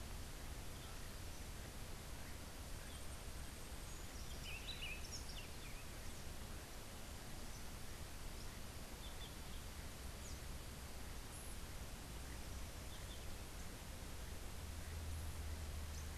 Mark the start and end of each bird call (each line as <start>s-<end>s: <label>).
3.8s-5.6s: Buff-throated Saltator (Saltator maximus)
8.9s-9.4s: Yellow-crowned Euphonia (Euphonia luteicapilla)